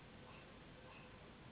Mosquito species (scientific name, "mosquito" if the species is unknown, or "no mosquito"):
Anopheles gambiae s.s.